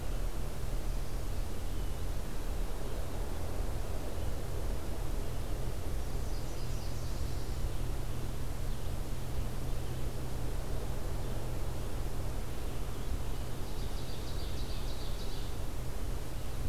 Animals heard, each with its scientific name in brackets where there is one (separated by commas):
Ovenbird (Seiurus aurocapilla), Nashville Warbler (Leiothlypis ruficapilla)